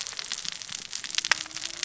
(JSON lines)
{"label": "biophony, cascading saw", "recorder": "SoundTrap 600 or HydroMoth"}